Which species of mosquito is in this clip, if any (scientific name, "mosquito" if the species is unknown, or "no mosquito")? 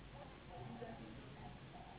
Anopheles gambiae s.s.